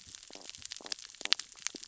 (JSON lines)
{"label": "biophony, stridulation", "recorder": "SoundTrap 600 or HydroMoth"}